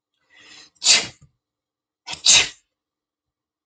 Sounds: Sneeze